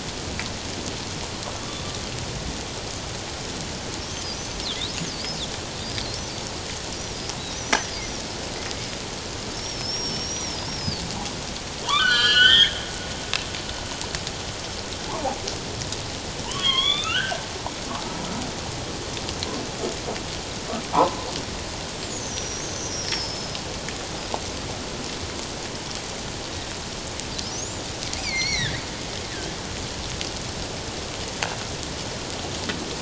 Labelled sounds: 11.8	12.8	humpback whale, 0.88 to 7.3 kHz
15.1	15.4	humpback whale, 0.78 to 1.2 kHz
16.4	17.4	humpback whale, 0.84 to 3.8 kHz
20.9	21.2	humpback whale, 0.78 to 1.3 kHz

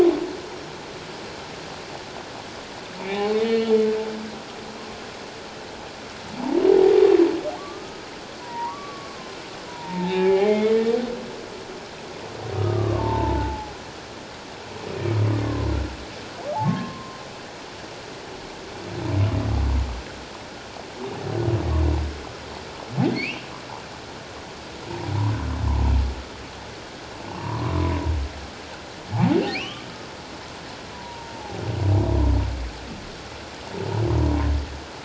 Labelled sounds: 3.0	3.7	humpback whale, 0.78 to 4.4 kHz
7.6	9.1	humpback whale, 0.84 to 1.3 kHz
9.7	10.8	humpback whale, 0.78 to 3.9 kHz
12.5	13.7	humpback whale, 0.78 to 1.3 kHz
15.4	15.7	humpback whale, 0.97 to 1.2 kHz
16.6	17.2	humpback whale, 1.0 to 1.2 kHz
23.1	23.5	humpback whale, 2.0 to 2.9 kHz
27.3	27.6	humpback whale, 0.81 to 1.2 kHz
29.5	29.9	humpback whale, 1.1 to 3.4 kHz
30.9	31.6	humpback whale, 0.78 to 1.0 kHz

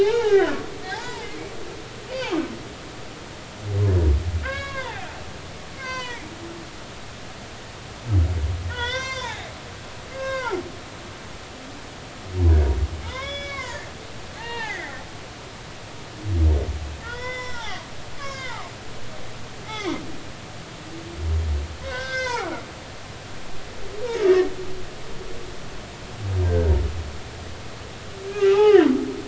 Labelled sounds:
0.0	1.3	humpback whale, 0.80 to 2.4 kHz
4.4	5.1	humpback whale, 0.80 to 4.0 kHz
5.8	6.2	humpback whale, 0.90 to 6.3 kHz
8.7	9.5	humpback whale, 0.80 to 6.4 kHz
10.1	10.6	humpback whale, 0.80 to 4.8 kHz
13.0	13.9	humpback whale, 0.83 to 5.2 kHz
14.4	15.0	humpback whale, 0.80 to 3.8 kHz
17.0	18.7	humpback whale, 0.80 to 6.2 kHz
19.6	20.0	humpback whale, 0.90 to 2.4 kHz
21.8	22.6	humpback whale, 0.80 to 6.1 kHz
24.2	24.5	humpback whale, 1.7 to 1.9 kHz
26.4	26.7	humpback whale, 1.4 to 1.6 kHz
28.3	28.9	humpback whale, 0.80 to 2.7 kHz

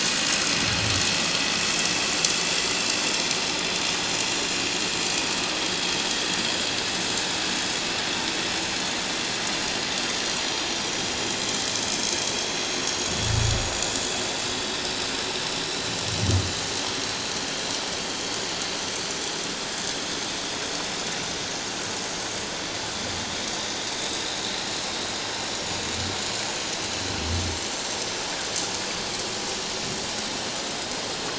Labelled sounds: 0.3	0.7	vessel noise, 4.9 to 6.2 kHz
3.4	3.7	vessel noise, 7.1 to 7.2 kHz
11.3	11.5	vessel noise, 7.3 to 7.5 kHz
28.3	28.5	vessel noise, 7.2 to 7.3 kHz

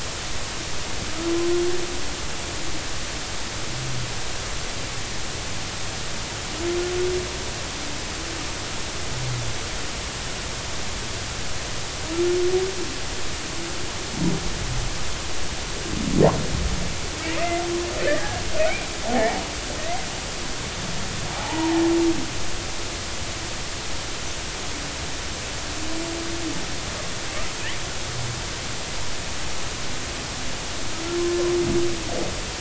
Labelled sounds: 19.1	19.4	humpback whale, 0.80 to 0.93 kHz
21.4	21.8	humpback whale, 0.80 to 1.0 kHz

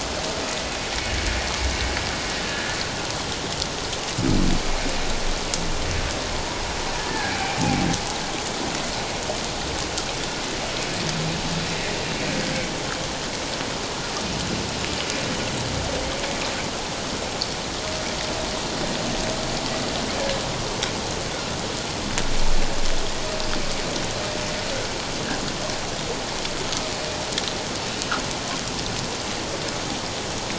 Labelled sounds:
2.5	2.8	humpback whale, 1.6 to 1.8 kHz
7.1	7.3	humpback whale, 1.6 to 1.8 kHz

